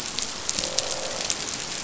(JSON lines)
{"label": "biophony, croak", "recorder": "SoundTrap 500"}